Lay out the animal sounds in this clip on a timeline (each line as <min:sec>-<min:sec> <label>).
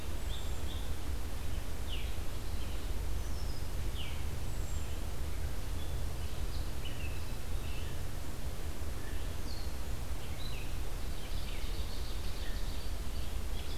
0:00.0-0:13.8 Red-eyed Vireo (Vireo olivaceus)
0:00.1-0:00.8 Hermit Thrush (Catharus guttatus)
0:04.3-0:05.0 Hermit Thrush (Catharus guttatus)
0:11.1-0:12.9 Ovenbird (Seiurus aurocapilla)